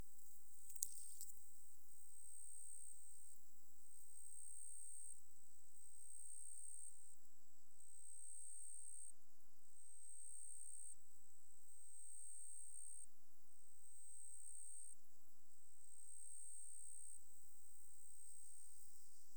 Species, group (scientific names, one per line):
Pteronemobius heydenii
Orthoptera